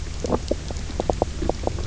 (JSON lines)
{"label": "biophony, knock croak", "recorder": "SoundTrap 300"}